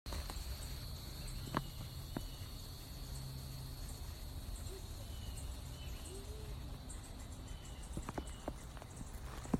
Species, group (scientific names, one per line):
Neocicada hieroglyphica
Cicadidae